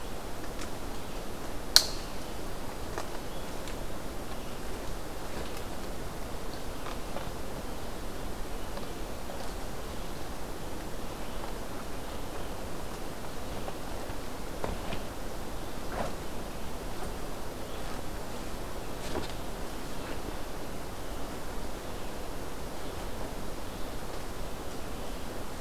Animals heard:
forest ambience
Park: Hubbard Brook Experimental Forest